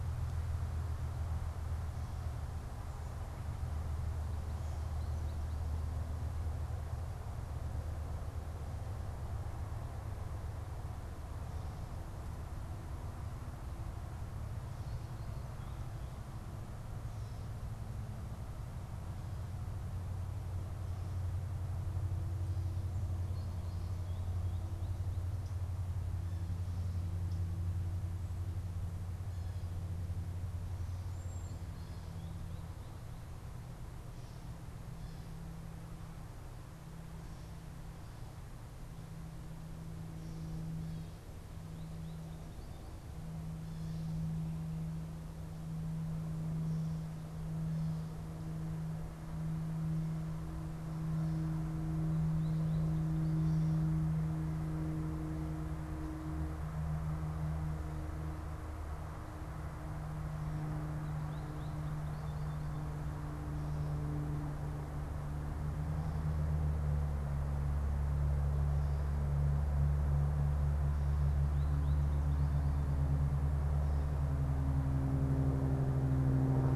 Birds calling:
American Goldfinch (Spinus tristis)
Cedar Waxwing (Bombycilla cedrorum)

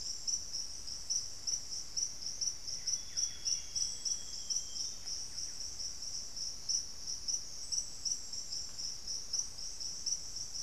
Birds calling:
Amazonian Grosbeak (Cyanoloxia rothschildii)
Buff-breasted Wren (Cantorchilus leucotis)

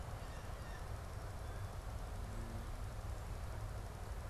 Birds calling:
Blue Jay (Cyanocitta cristata)

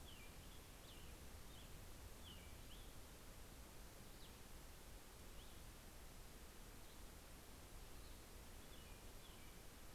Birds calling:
Cassin's Vireo (Vireo cassinii)
American Robin (Turdus migratorius)

